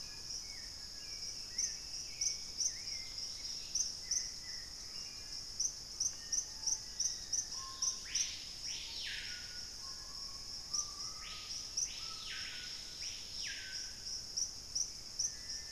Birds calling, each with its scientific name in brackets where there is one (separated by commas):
Screaming Piha (Lipaugus vociferans), unidentified bird, Black-faced Antthrush (Formicarius analis), Hauxwell's Thrush (Turdus hauxwelli), Dusky-throated Antshrike (Thamnomanes ardesiacus), Black-capped Becard (Pachyramphus marginatus), Dusky-capped Greenlet (Pachysylvia hypoxantha)